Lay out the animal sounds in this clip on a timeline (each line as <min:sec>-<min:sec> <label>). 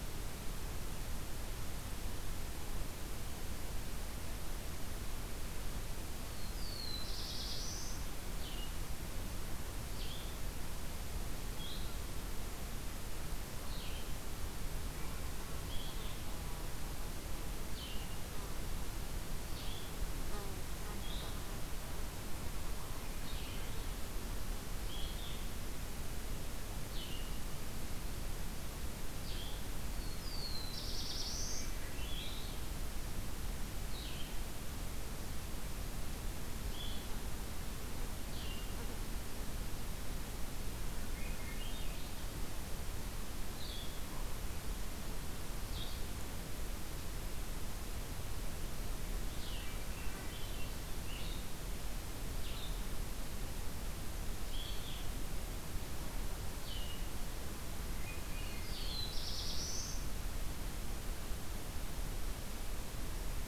0:06.4-0:08.1 Black-throated Blue Warbler (Setophaga caerulescens)
0:08.4-0:57.2 Blue-headed Vireo (Vireo solitarius)
0:22.8-0:23.9 Swainson's Thrush (Catharus ustulatus)
0:29.8-0:31.6 Black-throated Blue Warbler (Setophaga caerulescens)
0:31.3-0:32.6 Swainson's Thrush (Catharus ustulatus)
0:41.0-0:42.2 Swainson's Thrush (Catharus ustulatus)
0:49.3-0:50.9 Swainson's Thrush (Catharus ustulatus)
0:57.8-0:58.8 Swainson's Thrush (Catharus ustulatus)
0:58.3-1:00.1 Black-throated Blue Warbler (Setophaga caerulescens)